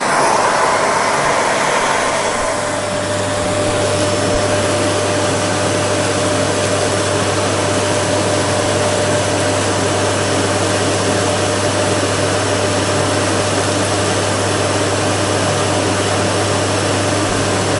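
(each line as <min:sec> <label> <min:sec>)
0:00.0 A vacuum cleaner whirrs loudly in a constant pattern. 0:17.8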